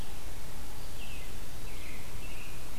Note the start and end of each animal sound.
0.6s-2.8s: American Robin (Turdus migratorius)

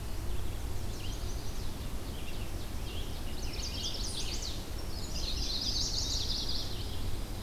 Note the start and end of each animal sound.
0.0s-7.2s: Red-eyed Vireo (Vireo olivaceus)
0.4s-1.8s: Chestnut-sided Warbler (Setophaga pensylvanica)
1.7s-3.3s: Ovenbird (Seiurus aurocapilla)
1.8s-4.4s: Scarlet Tanager (Piranga olivacea)
3.3s-4.7s: Chestnut-sided Warbler (Setophaga pensylvanica)
5.0s-6.7s: Chestnut-sided Warbler (Setophaga pensylvanica)

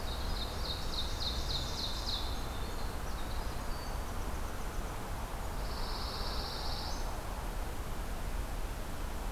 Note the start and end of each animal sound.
0.0s-2.5s: Ovenbird (Seiurus aurocapilla)
0.0s-5.0s: Winter Wren (Troglodytes hiemalis)
5.6s-7.1s: Pine Warbler (Setophaga pinus)

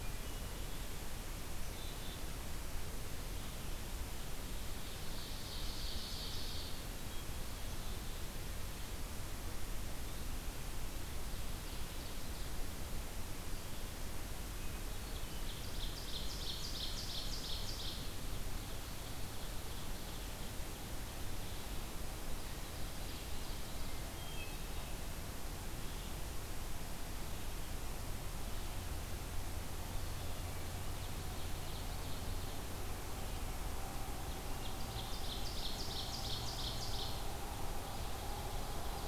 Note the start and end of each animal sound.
1.6s-2.2s: Black-capped Chickadee (Poecile atricapillus)
4.6s-7.0s: Ovenbird (Seiurus aurocapilla)
6.8s-8.3s: Black-capped Chickadee (Poecile atricapillus)
10.9s-12.8s: Ovenbird (Seiurus aurocapilla)
14.7s-20.5s: Ovenbird (Seiurus aurocapilla)
22.2s-24.1s: Ovenbird (Seiurus aurocapilla)
23.9s-25.0s: Hermit Thrush (Catharus guttatus)
30.9s-32.8s: Ovenbird (Seiurus aurocapilla)
34.4s-37.4s: Ovenbird (Seiurus aurocapilla)

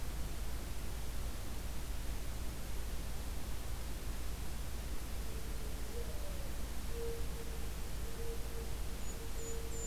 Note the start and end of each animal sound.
4.6s-9.9s: Mourning Dove (Zenaida macroura)
8.7s-9.9s: Golden-crowned Kinglet (Regulus satrapa)

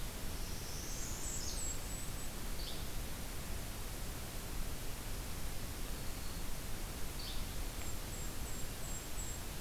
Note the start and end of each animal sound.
0.3s-1.7s: Northern Parula (Setophaga americana)
0.7s-2.4s: Golden-crowned Kinglet (Regulus satrapa)
2.5s-2.8s: Yellow-bellied Flycatcher (Empidonax flaviventris)
5.7s-6.5s: Black-throated Green Warbler (Setophaga virens)
7.1s-7.4s: Yellow-bellied Flycatcher (Empidonax flaviventris)
7.6s-9.5s: Golden-crowned Kinglet (Regulus satrapa)

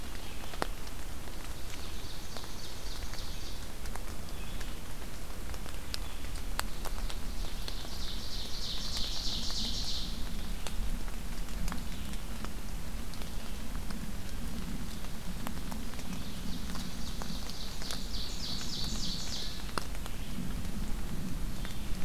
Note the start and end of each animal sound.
0.0s-22.0s: Red-eyed Vireo (Vireo olivaceus)
1.2s-3.7s: Ovenbird (Seiurus aurocapilla)
7.3s-10.4s: Ovenbird (Seiurus aurocapilla)
15.8s-19.8s: Ovenbird (Seiurus aurocapilla)

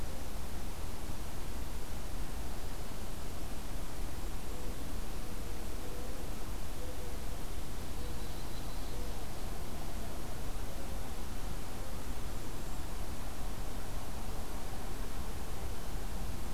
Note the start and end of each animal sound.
4.0s-4.7s: Golden-crowned Kinglet (Regulus satrapa)
7.4s-9.6s: Ovenbird (Seiurus aurocapilla)
7.9s-9.0s: Yellow-rumped Warbler (Setophaga coronata)
11.7s-13.0s: Golden-crowned Kinglet (Regulus satrapa)

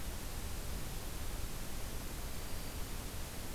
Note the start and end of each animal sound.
2.3s-2.9s: Black-throated Green Warbler (Setophaga virens)

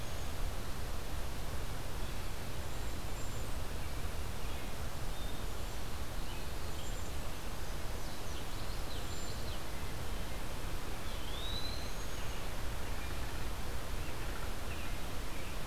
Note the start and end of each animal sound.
2.6s-3.5s: Cedar Waxwing (Bombycilla cedrorum)
6.4s-7.2s: Cedar Waxwing (Bombycilla cedrorum)
7.8s-9.7s: Common Yellowthroat (Geothlypis trichas)
8.8s-9.5s: Cedar Waxwing (Bombycilla cedrorum)
11.1s-12.1s: Eastern Wood-Pewee (Contopus virens)

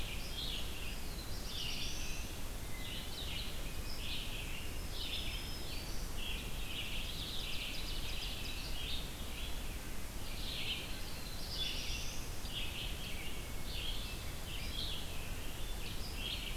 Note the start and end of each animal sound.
0.0s-16.6s: Red-eyed Vireo (Vireo olivaceus)
0.7s-2.4s: Black-throated Blue Warbler (Setophaga caerulescens)
2.6s-3.9s: Hermit Thrush (Catharus guttatus)
4.5s-6.2s: Black-throated Green Warbler (Setophaga virens)
6.8s-8.9s: Ovenbird (Seiurus aurocapilla)
8.5s-9.6s: Eastern Wood-Pewee (Contopus virens)
10.8s-12.5s: Black-throated Blue Warbler (Setophaga caerulescens)
14.0s-14.5s: Hermit Thrush (Catharus guttatus)

